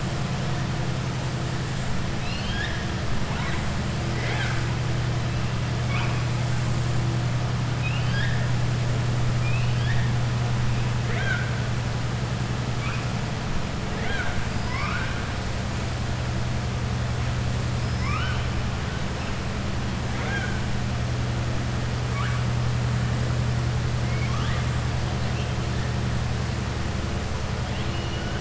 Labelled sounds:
2.1	2.9	killer whale, southern resident, 1.6 to 5.7 kHz
7.7	8.4	killer whale, southern resident, 1.6 to 5.4 kHz
9.3	10.1	killer whale, southern resident, 1.7 to 3.8 kHz
11.0	11.5	killer whale, southern resident, 0.67 to 3.9 kHz
13.9	14.4	killer whale, southern resident, 0.43 to 4.1 kHz
17.9	18.4	killer whale, southern resident, 1.0 to 3.2 kHz
20.0	20.6	killer whale, southern resident, 0.48 to 3.7 kHz
24.0	24.7	killer whale, southern resident, 1.1 to 4.0 kHz
27.6	28.3	killer whale, southern resident, 2.2 to 4.2 kHz

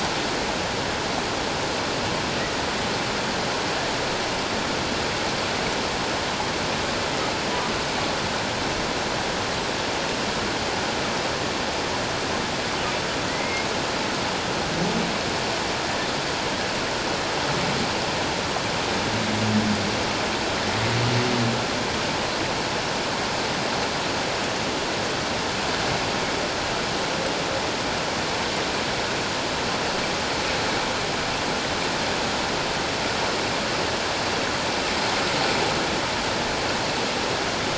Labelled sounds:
13.3	13.7	humpback whale, 1.8 to 2.2 kHz

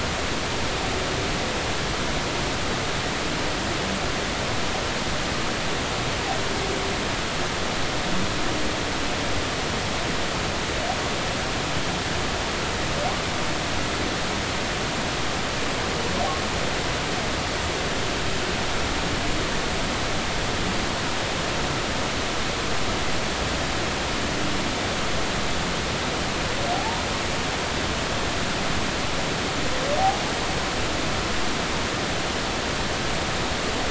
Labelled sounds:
26.7	27.1	humpback whale, 0.80 to 1.1 kHz

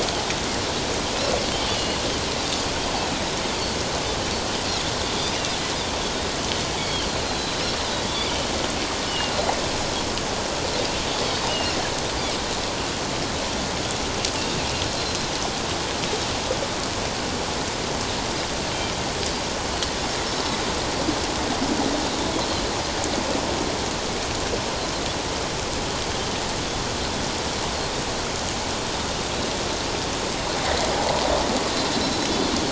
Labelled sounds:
1.5	2.0	Pacific white-sided dolphin, 2.8 to 3.2 kHz
5.3	5.6	Pacific white-sided dolphin, 2.6 to 2.9 kHz
7.1	7.6	Pacific white-sided dolphin, 3.9 to 4.3 kHz
8.0	8.4	Pacific white-sided dolphin, 2.2 to 3.6 kHz
9.1	9.3	Pacific white-sided dolphin, 2.7 to 3.0 kHz
11.5	11.8	Pacific white-sided dolphin, 2.6 to 3.0 kHz

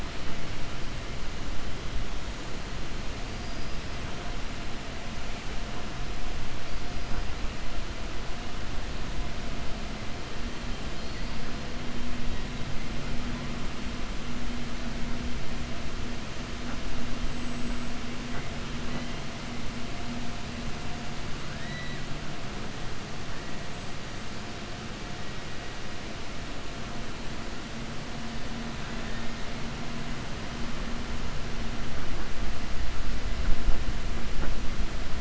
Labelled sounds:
10.9	11.4	killer whale, 3.7 to 5.0 kHz
23.6	24.3	killer whale, 7.2 to 8.0 kHz

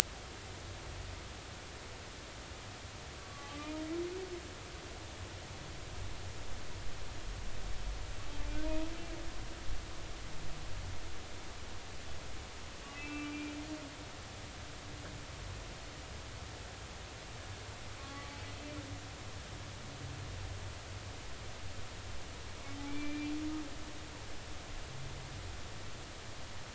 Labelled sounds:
3.3	3.7	humpback whale, 1.1 to 1.2 kHz
12.9	13.5	humpback whale, 1.2 to 2.7 kHz
18.0	18.3	humpback whale, 1.0 to 1.2 kHz
22.9	23.3	humpback whale, 2.2 to 2.5 kHz

